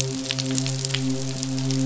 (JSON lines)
{"label": "biophony, midshipman", "recorder": "SoundTrap 500"}